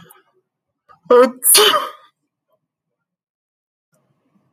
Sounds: Sneeze